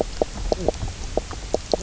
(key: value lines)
label: biophony, knock croak
recorder: SoundTrap 300